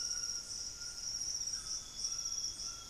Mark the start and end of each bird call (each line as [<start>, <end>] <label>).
[0.00, 2.90] White-throated Toucan (Ramphastos tucanus)
[1.06, 2.90] Amazonian Grosbeak (Cyanoloxia rothschildii)